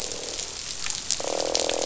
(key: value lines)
label: biophony, croak
recorder: SoundTrap 500